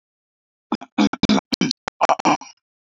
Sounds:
Throat clearing